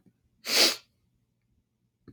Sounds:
Sniff